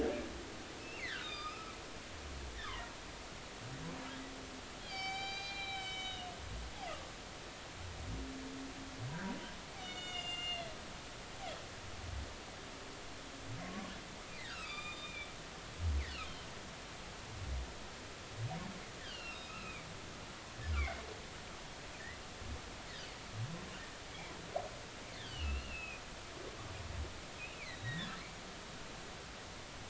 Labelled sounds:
0.8	1.8	humpback whale, 1.1 to 5.2 kHz
2.6	2.9	humpback whale, 0.90 to 2.3 kHz
4.8	6.3	humpback whale, 0.80 to 7.7 kHz
9.8	10.7	humpback whale, 1.4 to 7.2 kHz
13.6	15.3	humpback whale, 0.99 to 7.4 kHz
19.1	19.9	humpback whale, 1.2 to 3.0 kHz
20.8	21.0	humpback whale, 2.0 to 2.4 kHz
25.3	26.0	humpback whale, 2.4 to 3.1 kHz
27.5	28.2	humpback whale, 1.6 to 4.2 kHz

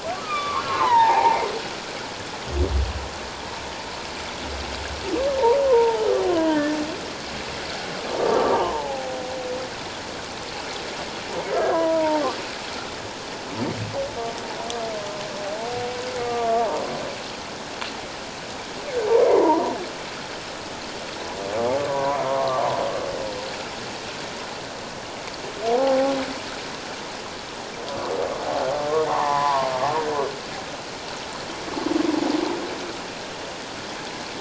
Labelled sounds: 0.1	1.4	humpback whale, 0.78 to 4.1 kHz
5.7	6.8	humpback whale, 0.81 to 2.0 kHz
8.2	9.1	humpback whale, 0.78 to 1.2 kHz
11.5	12.2	humpback whale, 0.84 to 1.8 kHz
16.2	16.7	humpback whale, 1.1 to 1.2 kHz
19.2	19.8	humpback whale, 0.84 to 1.2 kHz
21.8	22.6	humpback whale, 0.91 to 1.2 kHz
25.7	26.1	humpback whale, 0.78 to 0.91 kHz
28.9	29.7	humpback whale, 0.78 to 1.2 kHz

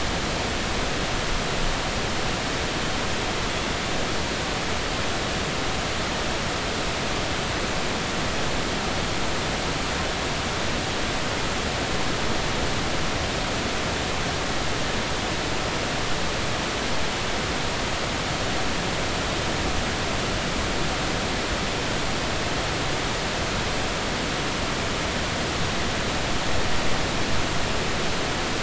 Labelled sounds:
3.5	3.7	killer whale, Bigg's (transient), 3.3 to 3.5 kHz

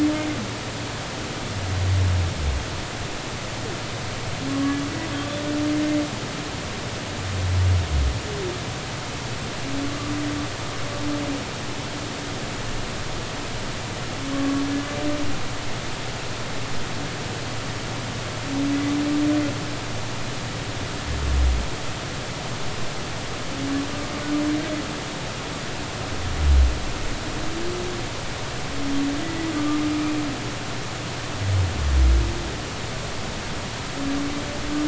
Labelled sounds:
4.5	4.8	humpback whale, 1.1 to 1.2 kHz
14.3	14.6	humpback whale, 1.1 to 1.2 kHz
29.2	29.8	humpback whale, 1.1 to 2.0 kHz

